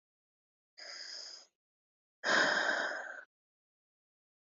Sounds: Sigh